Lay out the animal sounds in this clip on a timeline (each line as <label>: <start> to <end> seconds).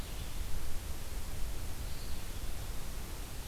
Red-eyed Vireo (Vireo olivaceus): 0.0 to 3.5 seconds